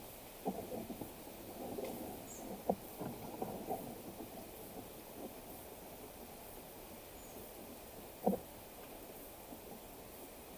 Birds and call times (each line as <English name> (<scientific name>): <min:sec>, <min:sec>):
White-eyed Slaty-Flycatcher (Melaenornis fischeri): 0:02.3